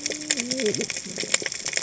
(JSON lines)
{"label": "biophony, cascading saw", "recorder": "HydroMoth"}